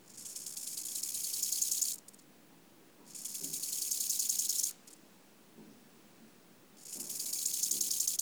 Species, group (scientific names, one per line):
Chorthippus eisentrauti
Orthoptera